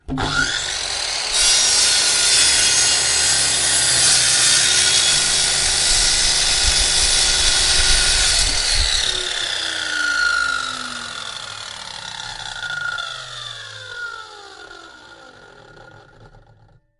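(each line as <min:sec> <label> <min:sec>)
0:00.0 A circular saw cuts with a loud, high-pitched sound that gradually slows down and decreases in intensity. 0:17.0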